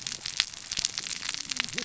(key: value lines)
label: biophony, cascading saw
recorder: SoundTrap 600 or HydroMoth